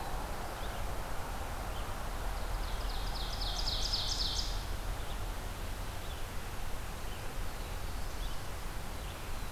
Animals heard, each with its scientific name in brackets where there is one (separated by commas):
Red-eyed Vireo (Vireo olivaceus), Ovenbird (Seiurus aurocapilla)